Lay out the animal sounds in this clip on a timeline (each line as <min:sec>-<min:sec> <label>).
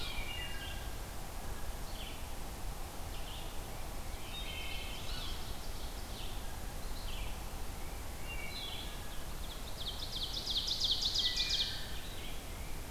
0:00.0-0:00.8 Wood Thrush (Hylocichla mustelina)
0:00.5-0:12.9 Red-eyed Vireo (Vireo olivaceus)
0:04.0-0:06.3 Ovenbird (Seiurus aurocapilla)
0:04.2-0:04.9 Wood Thrush (Hylocichla mustelina)
0:08.0-0:08.7 Wood Thrush (Hylocichla mustelina)
0:08.9-0:11.9 Ovenbird (Seiurus aurocapilla)
0:11.1-0:11.9 Wood Thrush (Hylocichla mustelina)